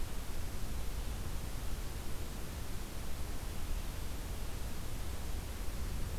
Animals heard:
forest ambience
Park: Marsh-Billings-Rockefeller National Historical Park